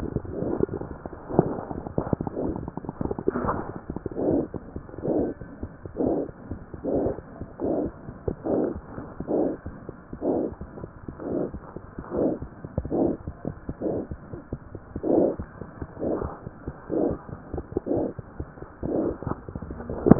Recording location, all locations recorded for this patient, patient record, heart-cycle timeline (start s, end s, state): mitral valve (MV)
aortic valve (AV)+pulmonary valve (PV)+tricuspid valve (TV)+mitral valve (MV)
#Age: Infant
#Sex: Male
#Height: 60.0 cm
#Weight: 8.85 kg
#Pregnancy status: False
#Murmur: Absent
#Murmur locations: nan
#Most audible location: nan
#Systolic murmur timing: nan
#Systolic murmur shape: nan
#Systolic murmur grading: nan
#Systolic murmur pitch: nan
#Systolic murmur quality: nan
#Diastolic murmur timing: nan
#Diastolic murmur shape: nan
#Diastolic murmur grading: nan
#Diastolic murmur pitch: nan
#Diastolic murmur quality: nan
#Outcome: Normal
#Campaign: 2015 screening campaign
0.00	5.40	unannotated
5.40	5.45	S2
5.45	5.61	diastole
5.61	5.69	S1
5.69	5.83	systole
5.83	5.89	S2
5.89	6.05	diastole
6.05	6.12	S1
6.12	6.27	systole
6.27	6.32	S2
6.32	6.49	diastole
6.49	6.56	S1
6.56	6.72	systole
6.72	6.77	S2
6.77	6.91	diastole
6.91	6.99	S1
6.99	7.16	systole
7.16	7.21	S2
7.21	7.39	diastole
7.39	7.45	S1
7.45	7.58	systole
7.58	7.66	S2
7.66	7.84	diastole
7.84	7.92	S1
7.92	8.07	systole
8.07	8.12	S2
8.12	8.26	diastole
8.26	8.35	S1
8.35	8.74	unannotated
8.74	8.81	S1
8.81	8.96	systole
8.96	9.02	S2
9.02	9.18	diastole
9.18	9.25	S1
9.25	9.64	unannotated
9.64	9.71	S1
9.71	9.87	systole
9.87	9.92	S2
9.92	10.12	diastole
10.12	10.18	S1
10.18	10.59	unannotated
10.59	10.67	S1
10.67	10.82	systole
10.82	10.87	S2
10.87	11.06	diastole
11.06	11.14	S1
11.14	11.51	unannotated
11.51	11.60	S1
11.60	11.74	systole
11.74	11.80	S2
11.80	11.97	diastole
11.97	12.04	S1
12.04	12.40	unannotated
12.40	12.47	S1
12.47	12.61	systole
12.61	12.68	S2
12.68	12.84	diastole
12.84	12.89	S1
12.89	20.19	unannotated